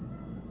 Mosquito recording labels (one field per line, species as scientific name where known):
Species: Aedes albopictus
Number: one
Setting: insect culture